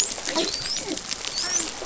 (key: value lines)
label: biophony, dolphin
recorder: SoundTrap 500